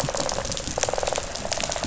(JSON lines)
{"label": "biophony, rattle response", "recorder": "SoundTrap 500"}